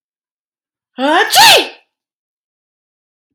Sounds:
Sneeze